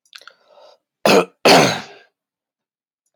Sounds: Throat clearing